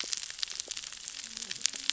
{"label": "biophony, cascading saw", "recorder": "SoundTrap 600 or HydroMoth"}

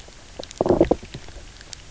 {"label": "biophony, low growl", "recorder": "SoundTrap 300"}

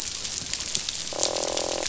{"label": "biophony, croak", "recorder": "SoundTrap 500"}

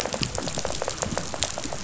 {"label": "biophony, rattle", "recorder": "SoundTrap 500"}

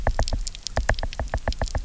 {"label": "biophony, knock", "recorder": "SoundTrap 300"}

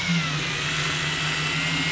{"label": "anthrophony, boat engine", "recorder": "SoundTrap 500"}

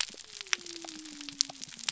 {"label": "biophony", "recorder": "SoundTrap 300"}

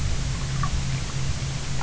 {"label": "anthrophony, boat engine", "recorder": "SoundTrap 300"}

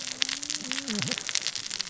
{"label": "biophony, cascading saw", "recorder": "SoundTrap 600 or HydroMoth"}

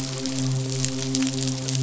{"label": "biophony, midshipman", "recorder": "SoundTrap 500"}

